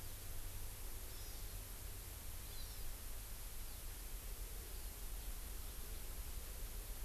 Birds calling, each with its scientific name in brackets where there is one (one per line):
Hawaii Amakihi (Chlorodrepanis virens)